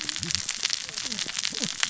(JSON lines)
{"label": "biophony, cascading saw", "recorder": "SoundTrap 600 or HydroMoth"}